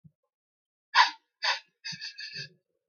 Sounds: Sniff